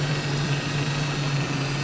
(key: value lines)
label: anthrophony, boat engine
recorder: SoundTrap 500